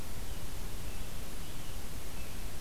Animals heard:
American Robin (Turdus migratorius)

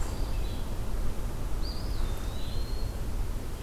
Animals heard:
Red-eyed Vireo (Vireo olivaceus)
Eastern Wood-Pewee (Contopus virens)

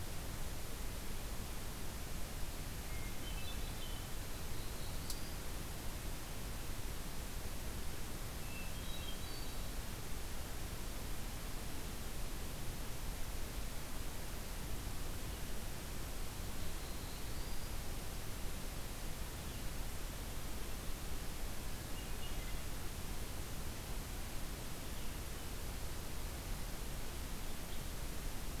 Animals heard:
Hermit Thrush (Catharus guttatus)
Black-throated Blue Warbler (Setophaga caerulescens)

